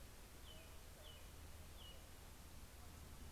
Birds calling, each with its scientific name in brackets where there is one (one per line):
American Robin (Turdus migratorius)